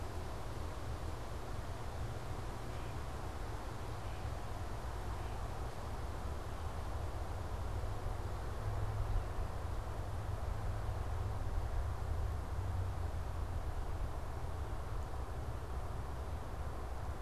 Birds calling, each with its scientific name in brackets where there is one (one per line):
Great Crested Flycatcher (Myiarchus crinitus)